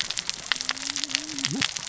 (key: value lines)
label: biophony, cascading saw
recorder: SoundTrap 600 or HydroMoth